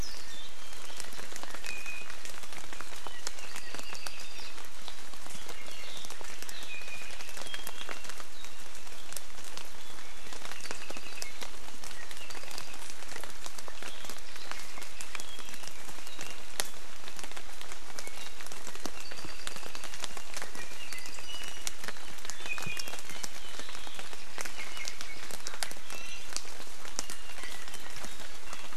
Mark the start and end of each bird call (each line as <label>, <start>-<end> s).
Warbling White-eye (Zosterops japonicus), 0.0-0.5 s
Apapane (Himatione sanguinea), 1.6-2.1 s
Apapane (Himatione sanguinea), 3.4-4.6 s
Iiwi (Drepanis coccinea), 5.4-6.0 s
Iiwi (Drepanis coccinea), 6.7-8.1 s
Apapane (Himatione sanguinea), 10.5-11.3 s
Apapane (Himatione sanguinea), 12.2-13.0 s
Apapane (Himatione sanguinea), 19.0-20.3 s
Apapane (Himatione sanguinea), 20.8-21.6 s
Iiwi (Drepanis coccinea), 21.2-21.8 s
Iiwi (Drepanis coccinea), 22.3-23.0 s
Iiwi (Drepanis coccinea), 25.9-26.3 s